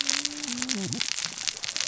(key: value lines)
label: biophony, cascading saw
recorder: SoundTrap 600 or HydroMoth